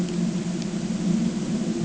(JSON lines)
{"label": "ambient", "recorder": "HydroMoth"}